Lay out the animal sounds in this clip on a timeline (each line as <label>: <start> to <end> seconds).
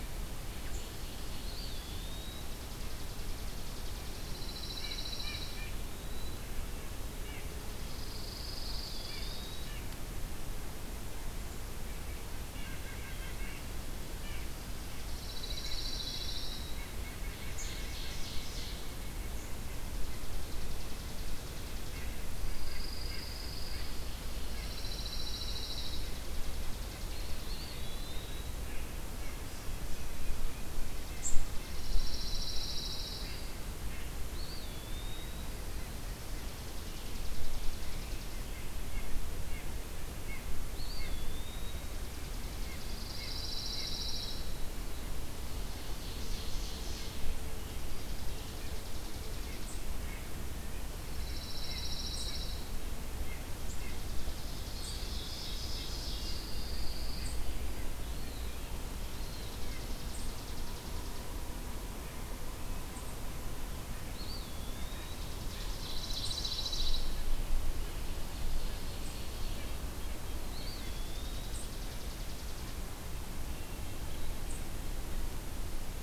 Ovenbird (Seiurus aurocapilla): 0.4 to 1.9 seconds
Eastern Wood-Pewee (Contopus virens): 1.1 to 2.7 seconds
Chipping Sparrow (Spizella passerina): 2.3 to 4.1 seconds
Pine Warbler (Setophaga pinus): 4.0 to 5.7 seconds
White-breasted Nuthatch (Sitta carolinensis): 4.5 to 10.0 seconds
Pine Warbler (Setophaga pinus): 7.7 to 9.6 seconds
Red-breasted Nuthatch (Sitta canadensis): 12.1 to 69.8 seconds
White-breasted Nuthatch (Sitta carolinensis): 12.4 to 13.7 seconds
Pine Warbler (Setophaga pinus): 14.9 to 16.7 seconds
Eastern Wood-Pewee (Contopus virens): 15.8 to 16.6 seconds
White-breasted Nuthatch (Sitta carolinensis): 16.5 to 18.3 seconds
Ovenbird (Seiurus aurocapilla): 17.2 to 19.2 seconds
Chipping Sparrow (Spizella passerina): 20.0 to 22.1 seconds
Pine Warbler (Setophaga pinus): 22.4 to 24.1 seconds
Pine Warbler (Setophaga pinus): 24.4 to 26.1 seconds
Chipping Sparrow (Spizella passerina): 26.1 to 27.8 seconds
Eastern Wood-Pewee (Contopus virens): 27.2 to 28.8 seconds
Red Squirrel (Tamiasciurus hudsonicus): 31.1 to 31.5 seconds
Pine Warbler (Setophaga pinus): 31.5 to 33.4 seconds
Eastern Wood-Pewee (Contopus virens): 34.1 to 35.7 seconds
Chipping Sparrow (Spizella passerina): 36.3 to 38.4 seconds
Eastern Wood-Pewee (Contopus virens): 40.4 to 42.2 seconds
Pine Warbler (Setophaga pinus): 42.5 to 44.7 seconds
Ovenbird (Seiurus aurocapilla): 44.8 to 47.4 seconds
Chipping Sparrow (Spizella passerina): 47.6 to 49.9 seconds
unidentified call: 49.5 to 60.3 seconds
Pine Warbler (Setophaga pinus): 50.8 to 52.9 seconds
Ovenbird (Seiurus aurocapilla): 54.2 to 56.7 seconds
Pine Warbler (Setophaga pinus): 55.9 to 57.7 seconds
Eastern Wood-Pewee (Contopus virens): 57.9 to 59.9 seconds
Chipping Sparrow (Spizella passerina): 58.9 to 61.3 seconds
Eastern Wood-Pewee (Contopus virens): 64.0 to 65.4 seconds
Chipping Sparrow (Spizella passerina): 64.5 to 66.1 seconds
Pine Warbler (Setophaga pinus): 65.7 to 67.3 seconds
unidentified call: 66.1 to 74.6 seconds
Ovenbird (Seiurus aurocapilla): 67.9 to 69.8 seconds
Eastern Wood-Pewee (Contopus virens): 70.2 to 71.8 seconds
Chipping Sparrow (Spizella passerina): 70.5 to 72.9 seconds
Hermit Thrush (Catharus guttatus): 73.4 to 74.6 seconds